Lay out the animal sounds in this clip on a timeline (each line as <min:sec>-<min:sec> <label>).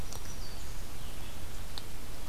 0:00.0-0:00.9 Black-throated Green Warbler (Setophaga virens)
0:00.8-0:02.3 Red-eyed Vireo (Vireo olivaceus)